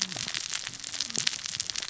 {"label": "biophony, cascading saw", "recorder": "SoundTrap 600 or HydroMoth"}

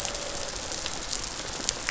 {"label": "biophony, rattle response", "recorder": "SoundTrap 500"}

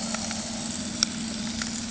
{"label": "anthrophony, boat engine", "recorder": "HydroMoth"}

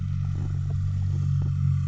{"label": "anthrophony, boat engine", "recorder": "SoundTrap 300"}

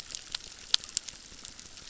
{"label": "biophony, crackle", "recorder": "SoundTrap 600"}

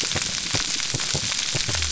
{"label": "biophony", "recorder": "SoundTrap 300"}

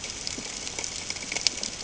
{"label": "ambient", "recorder": "HydroMoth"}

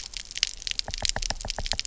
{"label": "biophony, knock", "recorder": "SoundTrap 300"}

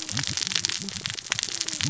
{"label": "biophony, cascading saw", "recorder": "SoundTrap 600 or HydroMoth"}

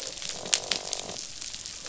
{"label": "biophony, croak", "recorder": "SoundTrap 500"}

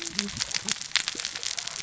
{"label": "biophony, cascading saw", "recorder": "SoundTrap 600 or HydroMoth"}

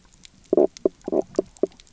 {"label": "biophony, knock croak", "recorder": "SoundTrap 300"}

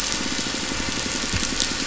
{"label": "biophony", "recorder": "SoundTrap 500"}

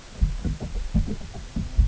{"label": "ambient", "recorder": "HydroMoth"}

